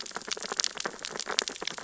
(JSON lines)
{"label": "biophony, sea urchins (Echinidae)", "recorder": "SoundTrap 600 or HydroMoth"}